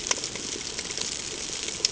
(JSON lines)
{"label": "ambient", "recorder": "HydroMoth"}